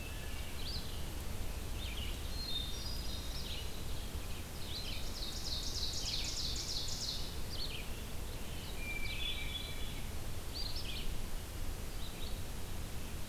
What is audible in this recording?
Red-eyed Vireo, Hermit Thrush, Ovenbird